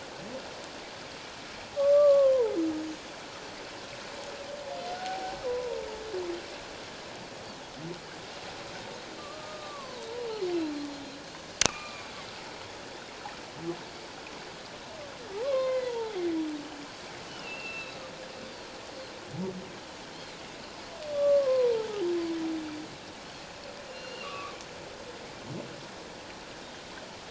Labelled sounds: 1.8	2.6	humpback whale, 0.81 to 1.2 kHz
4.9	5.8	humpback whale, 0.78 to 1.0 kHz
9.2	10.1	humpback whale, 0.88 to 1.3 kHz
10.2	10.4	Pacific white-sided dolphin, 2.8 to 3.1 kHz
11.6	12.1	humpback whale, 1.1 to 2.8 kHz
15.4	16.2	humpback whale, 0.78 to 4.2 kHz
17.3	18.0	humpback whale, 2.5 to 4.1 kHz
20.1	20.4	Pacific white-sided dolphin, 3.8 to 4.4 kHz
21.1	22.0	humpback whale, 0.78 to 1.2 kHz
23.9	24.6	humpback whale, 1.0 to 4.4 kHz

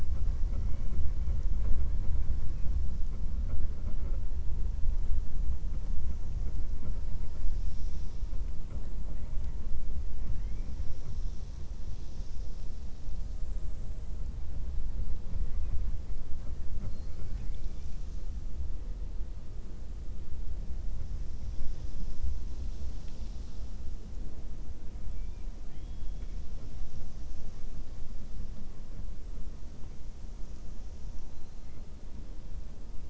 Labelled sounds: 0.4	1.0	killer whale, 0.52 to 3.0 kHz
10.2	10.7	killer whale, 1.0 to 3.2 kHz
25.6	26.3	killer whale, 1.4 to 3.7 kHz

